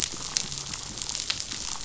{"label": "biophony", "recorder": "SoundTrap 500"}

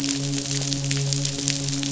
{"label": "biophony, midshipman", "recorder": "SoundTrap 500"}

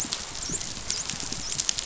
{"label": "biophony, dolphin", "recorder": "SoundTrap 500"}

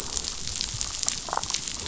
{"label": "biophony, damselfish", "recorder": "SoundTrap 500"}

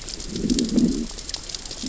{"label": "biophony, growl", "recorder": "SoundTrap 600 or HydroMoth"}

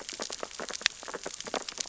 {"label": "biophony, sea urchins (Echinidae)", "recorder": "SoundTrap 600 or HydroMoth"}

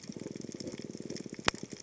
{"label": "biophony", "recorder": "HydroMoth"}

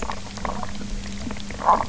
{"label": "biophony", "recorder": "SoundTrap 300"}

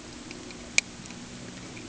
{"label": "anthrophony, boat engine", "recorder": "HydroMoth"}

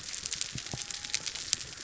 {"label": "biophony", "recorder": "SoundTrap 300"}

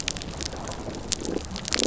{"label": "biophony, damselfish", "recorder": "SoundTrap 300"}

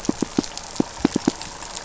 {"label": "biophony, pulse", "recorder": "SoundTrap 500"}
{"label": "anthrophony, boat engine", "recorder": "SoundTrap 500"}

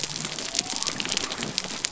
{"label": "biophony", "recorder": "SoundTrap 300"}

